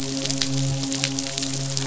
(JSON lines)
{"label": "biophony, midshipman", "recorder": "SoundTrap 500"}